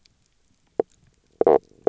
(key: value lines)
label: biophony, knock croak
recorder: SoundTrap 300